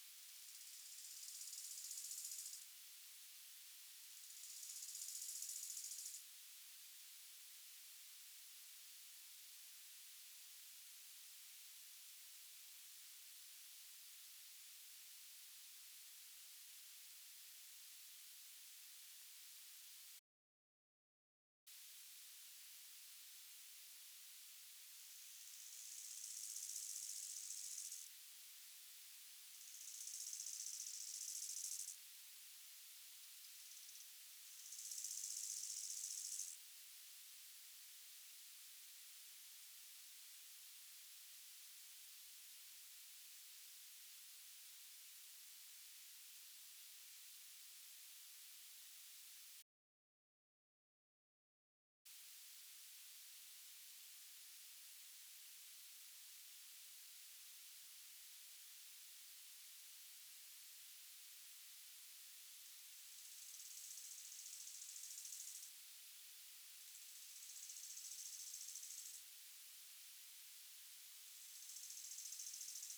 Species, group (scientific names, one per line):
Chorthippus biguttulus
Orthoptera